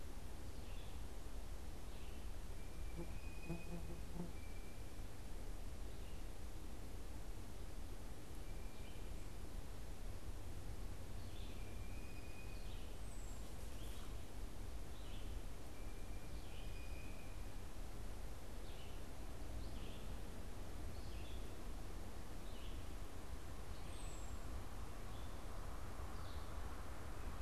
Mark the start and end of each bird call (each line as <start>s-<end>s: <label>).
0.0s-27.4s: Red-eyed Vireo (Vireo olivaceus)
2.6s-5.1s: Blue Jay (Cyanocitta cristata)
11.1s-12.8s: Blue Jay (Cyanocitta cristata)
12.7s-13.7s: unidentified bird
23.5s-24.8s: unidentified bird